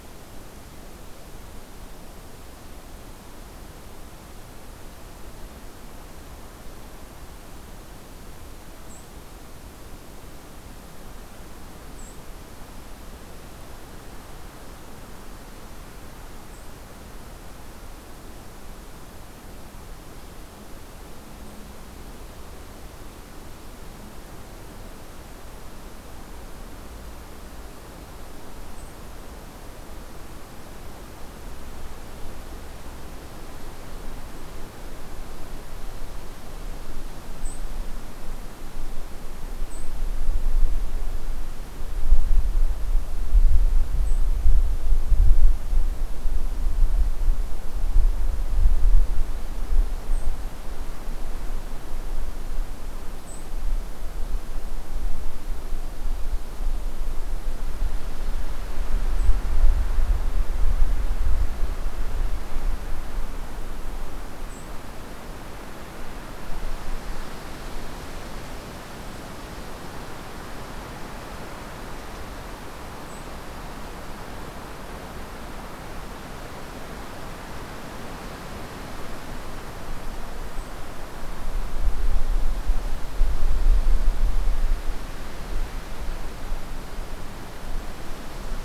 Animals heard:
White-throated Sparrow (Zonotrichia albicollis)

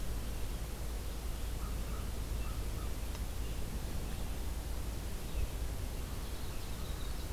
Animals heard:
Red-eyed Vireo (Vireo olivaceus), American Crow (Corvus brachyrhynchos), Winter Wren (Troglodytes hiemalis)

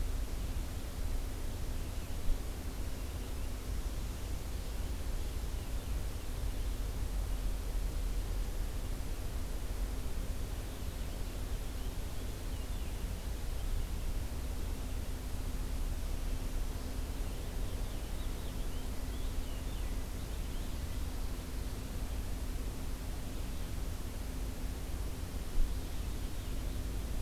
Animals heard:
Purple Finch (Haemorhous purpureus)

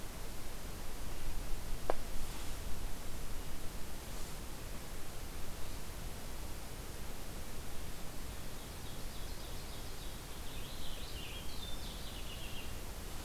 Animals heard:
Purple Finch (Haemorhous purpureus), Ovenbird (Seiurus aurocapilla)

